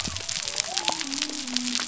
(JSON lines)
{"label": "biophony", "recorder": "SoundTrap 300"}